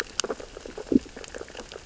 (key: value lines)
label: biophony, sea urchins (Echinidae)
recorder: SoundTrap 600 or HydroMoth